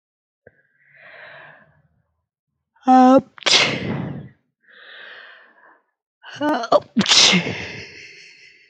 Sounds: Sneeze